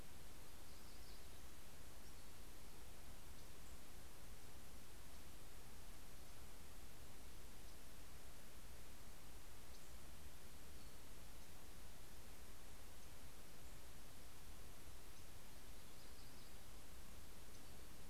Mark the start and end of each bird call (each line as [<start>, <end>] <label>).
[0.00, 2.50] Yellow-rumped Warbler (Setophaga coronata)
[14.80, 17.40] Yellow-rumped Warbler (Setophaga coronata)